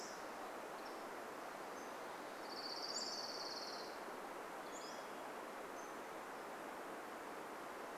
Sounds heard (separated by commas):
Pacific-slope Flycatcher song, Orange-crowned Warbler song, Hermit Thrush song